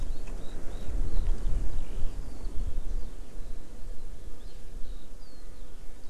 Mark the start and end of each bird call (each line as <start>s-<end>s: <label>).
0.0s-2.7s: Eurasian Skylark (Alauda arvensis)